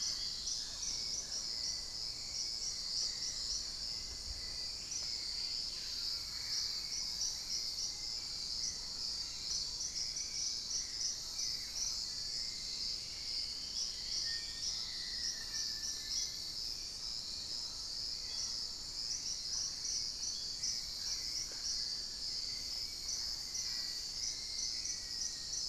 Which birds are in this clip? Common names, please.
Dusky-throated Antshrike, Mealy Parrot, Hauxwell's Thrush, Screaming Piha, Black-faced Antthrush, Gray Antwren